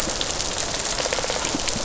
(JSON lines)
{"label": "biophony, rattle response", "recorder": "SoundTrap 500"}